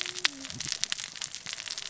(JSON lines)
{"label": "biophony, cascading saw", "recorder": "SoundTrap 600 or HydroMoth"}